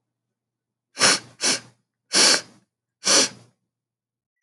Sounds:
Sniff